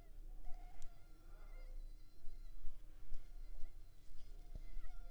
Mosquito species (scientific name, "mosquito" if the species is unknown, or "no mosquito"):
Culex pipiens complex